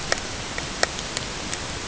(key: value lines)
label: ambient
recorder: HydroMoth